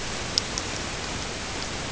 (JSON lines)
{"label": "ambient", "recorder": "HydroMoth"}